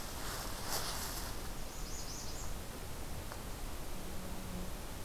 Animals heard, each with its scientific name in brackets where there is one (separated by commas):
American Redstart (Setophaga ruticilla)